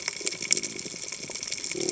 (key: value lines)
label: biophony
recorder: HydroMoth